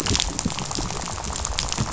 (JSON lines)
{"label": "biophony, rattle", "recorder": "SoundTrap 500"}